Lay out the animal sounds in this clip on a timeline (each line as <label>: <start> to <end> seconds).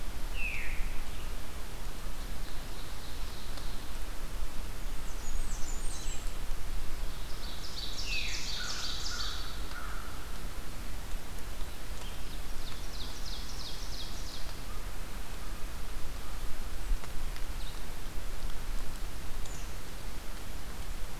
Veery (Catharus fuscescens): 0.3 to 0.7 seconds
Ovenbird (Seiurus aurocapilla): 1.9 to 3.9 seconds
Blackburnian Warbler (Setophaga fusca): 4.6 to 6.6 seconds
Ovenbird (Seiurus aurocapilla): 7.0 to 9.8 seconds
Veery (Catharus fuscescens): 7.9 to 8.6 seconds
American Crow (Corvus brachyrhynchos): 8.5 to 10.3 seconds
Ovenbird (Seiurus aurocapilla): 12.1 to 14.7 seconds